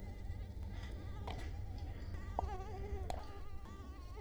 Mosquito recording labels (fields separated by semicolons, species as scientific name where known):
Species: Culex quinquefasciatus; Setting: cup